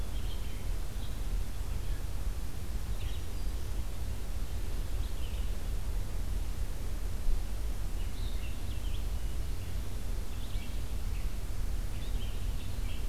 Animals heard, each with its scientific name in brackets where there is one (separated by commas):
Black-capped Chickadee (Poecile atricapillus), Red-eyed Vireo (Vireo olivaceus)